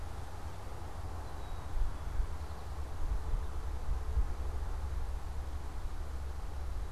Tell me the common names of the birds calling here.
Black-capped Chickadee